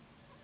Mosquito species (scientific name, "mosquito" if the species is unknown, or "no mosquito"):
Anopheles gambiae s.s.